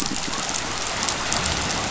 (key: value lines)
label: biophony
recorder: SoundTrap 500